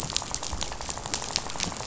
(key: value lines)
label: biophony, rattle
recorder: SoundTrap 500